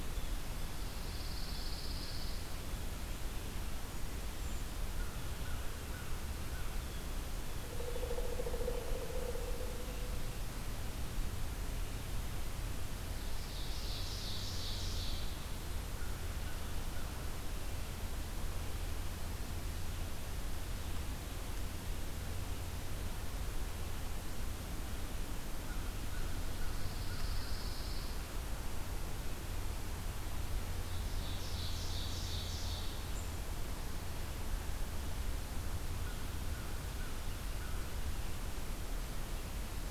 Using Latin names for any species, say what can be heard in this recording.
Setophaga pinus, Certhia americana, Corvus brachyrhynchos, Dryocopus pileatus, Seiurus aurocapilla